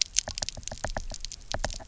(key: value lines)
label: biophony, knock
recorder: SoundTrap 300